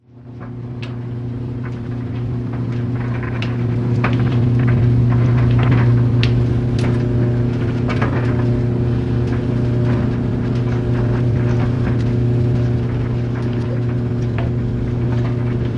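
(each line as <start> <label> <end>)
0.1 A dryer machine is running continuously. 15.8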